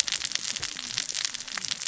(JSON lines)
{"label": "biophony, cascading saw", "recorder": "SoundTrap 600 or HydroMoth"}